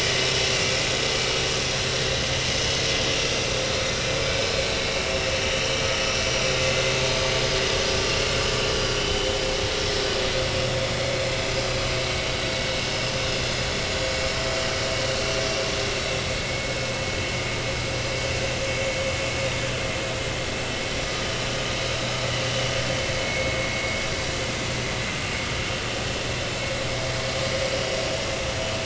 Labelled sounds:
7.1	7.5	vessel noise, 4.7 to 5.2 kHz
11.0	11.3	vessel noise, 5.0 to 5.1 kHz
16.4	16.7	vessel noise, 2.1 to 2.2 kHz
23.2	23.6	vessel noise, 2.1 to 2.3 kHz

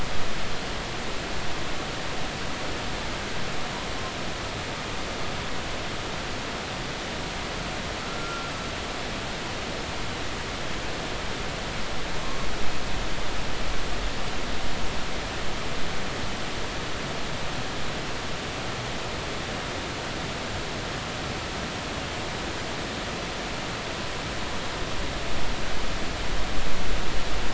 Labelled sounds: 8.0	8.5	humpback whale, 1.3 to 1.4 kHz

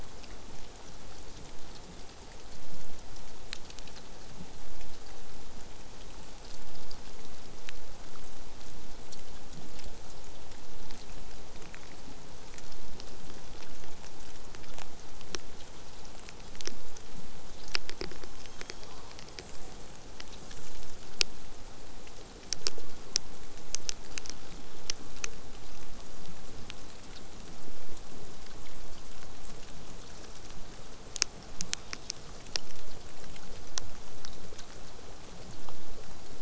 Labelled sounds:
11.8	16.8	vessel noise, 0 to 8.0 kHz
18.2	19.4	killer whale, southern resident, 2.9 to 8.0 kHz
26.1	30.4	killer whale, southern resident, 7.3 to 8.0 kHz
31.7	31.9	killer whale, southern resident, 3.4 to 8.0 kHz
32.3	32.8	killer whale, southern resident, 3.5 to 6.2 kHz

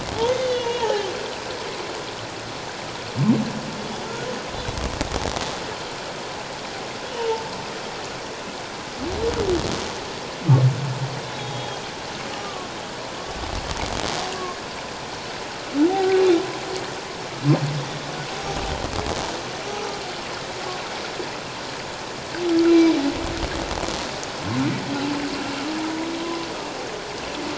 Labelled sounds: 0.2	1.1	humpback whale, 0.78 to 6.3 kHz
3.8	4.1	humpback whale, 3.3 to 3.5 kHz
7.1	7.4	humpback whale, 0.84 to 1.0 kHz
11.3	12.7	humpback whale, 1.1 to 3.9 kHz
15.9	16.2	humpback whale, 0.78 to 0.84 kHz
22.7	22.9	humpback whale, 3.9 to 4.1 kHz

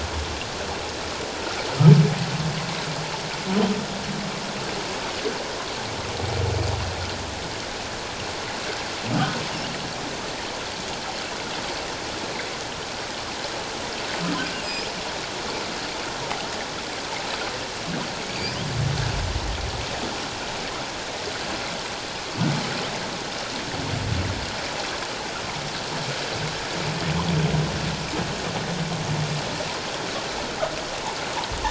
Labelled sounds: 9.1	9.4	humpback whale, 1.2 to 1.3 kHz
14.6	14.9	humpback whale, 2.2 to 2.6 kHz
18.2	18.6	humpback whale, 2.1 to 5.2 kHz

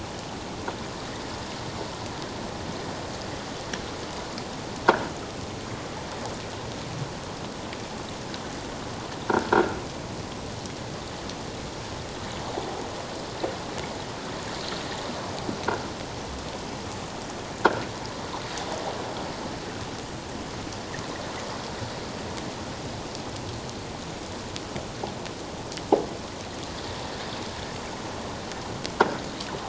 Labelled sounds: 9.3	9.8	croaking sound likely from a nearby submerged object, 1.3 to 1.7 kHz

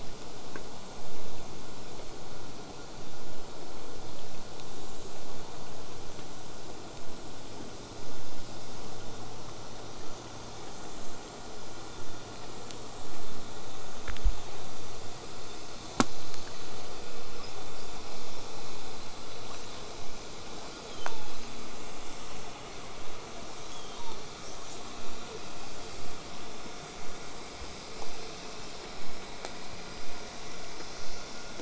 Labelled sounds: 19.4	19.8	killer whale, southern resident, 0.50 to 8.0 kHz
20.9	21.6	killer whale, southern resident, 0.70 to 3.8 kHz
24.4	24.6	killer whale, southern resident, 5.1 to 7.5 kHz
24.7	24.8	killer whale, southern resident, J pod, call S05, 5.3 to 8.0 kHz

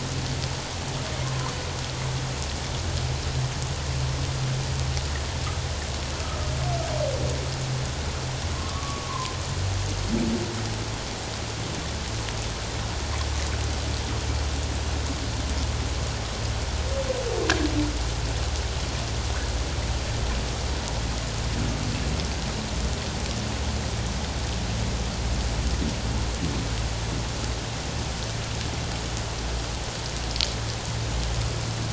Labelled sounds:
1.2	1.5	humpback whale, 0.91 to 1.2 kHz
8.6	9.3	humpback whale, 0.94 to 1.2 kHz

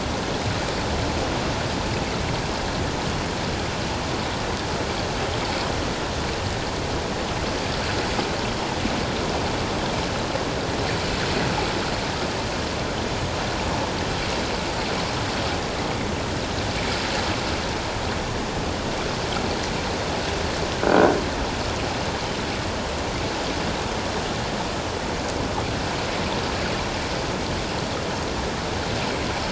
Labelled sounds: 20.8	21.2	croaking sound likely from a nearby submerged object, 1.4 to 1.6 kHz

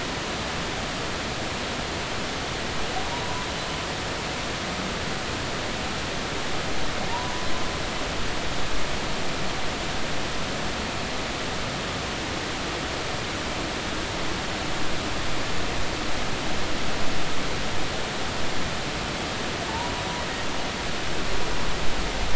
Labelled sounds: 3.1	3.5	humpback whale, 0.90 to 1.1 kHz
7.0	7.5	humpback whale, 0.80 to 1.1 kHz
19.7	19.9	humpback whale, 0.86 to 1.0 kHz

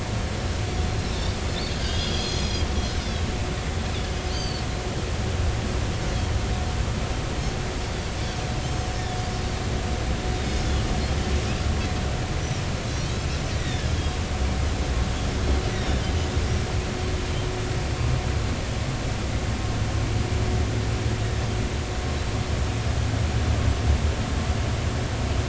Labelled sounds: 1.0	1.3	Pacific white-sided dolphin, 3.4 to 4.0 kHz
1.7	2.7	Pacific white-sided dolphin, 3.1 to 6.7 kHz
4.3	4.7	Pacific white-sided dolphin, 2.9 to 4.8 kHz
10.4	10.7	Pacific white-sided dolphin, 4.9 to 5.2 kHz
13.6	14.2	Pacific white-sided dolphin, 1.6 to 5.0 kHz
15.7	16.0	Pacific white-sided dolphin, 3.4 to 6.0 kHz

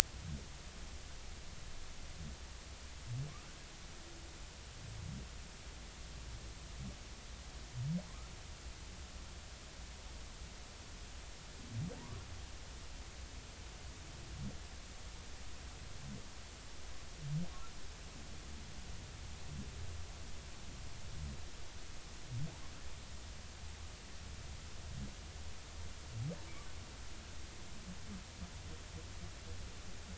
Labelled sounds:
12.0	12.2	humpback whale, 0.86 to 1.2 kHz

